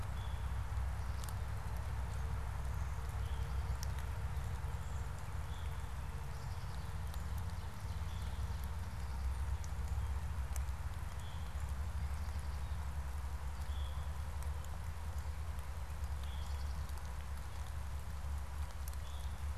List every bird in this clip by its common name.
Veery